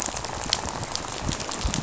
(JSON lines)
{"label": "biophony, rattle", "recorder": "SoundTrap 500"}